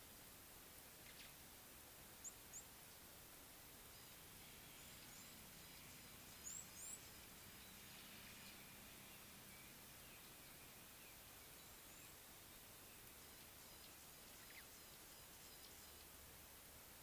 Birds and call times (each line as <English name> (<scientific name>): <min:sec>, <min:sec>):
Red-cheeked Cordonbleu (Uraeginthus bengalus): 0:06.6